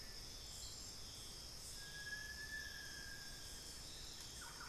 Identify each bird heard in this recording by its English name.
Little Tinamou, Buff-throated Woodcreeper, Thrush-like Wren